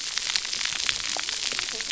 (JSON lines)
{"label": "biophony, cascading saw", "recorder": "SoundTrap 300"}